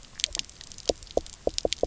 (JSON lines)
{"label": "biophony", "recorder": "SoundTrap 300"}